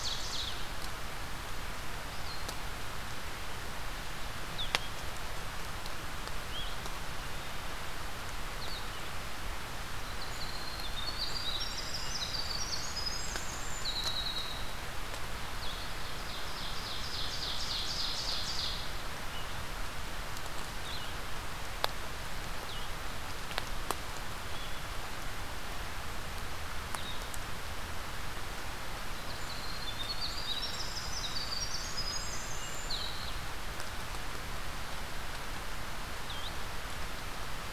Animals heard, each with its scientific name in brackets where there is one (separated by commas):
Blue-headed Vireo (Vireo solitarius), Winter Wren (Troglodytes hiemalis), Ovenbird (Seiurus aurocapilla)